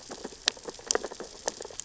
{"label": "biophony, sea urchins (Echinidae)", "recorder": "SoundTrap 600 or HydroMoth"}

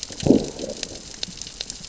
{"label": "biophony, growl", "recorder": "SoundTrap 600 or HydroMoth"}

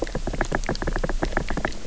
{"label": "biophony", "recorder": "SoundTrap 300"}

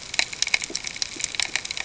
{"label": "ambient", "recorder": "HydroMoth"}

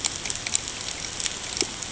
{"label": "ambient", "recorder": "HydroMoth"}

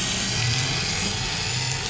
{"label": "anthrophony, boat engine", "recorder": "SoundTrap 500"}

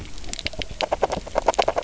{"label": "biophony, grazing", "recorder": "SoundTrap 300"}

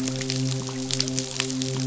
{"label": "biophony, midshipman", "recorder": "SoundTrap 500"}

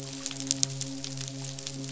{"label": "biophony, midshipman", "recorder": "SoundTrap 500"}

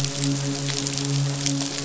{"label": "biophony, midshipman", "recorder": "SoundTrap 500"}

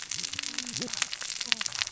{"label": "biophony, cascading saw", "recorder": "SoundTrap 600 or HydroMoth"}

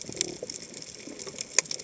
{"label": "biophony", "recorder": "HydroMoth"}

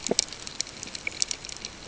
{"label": "ambient", "recorder": "HydroMoth"}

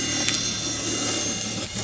{"label": "anthrophony, boat engine", "recorder": "SoundTrap 300"}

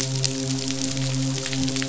{"label": "biophony, midshipman", "recorder": "SoundTrap 500"}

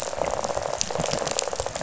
{"label": "biophony, rattle", "recorder": "SoundTrap 500"}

